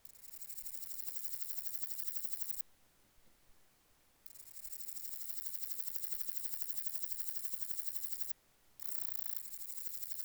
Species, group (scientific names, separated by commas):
Parnassiana parnassica, Orthoptera